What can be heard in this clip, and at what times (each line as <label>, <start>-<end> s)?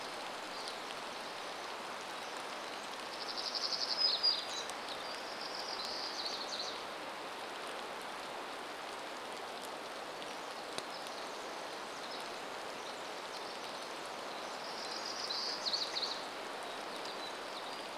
warbler song, 0-8 s
rain, 0-18 s
Pacific Wren song, 10-16 s
warbler song, 14-18 s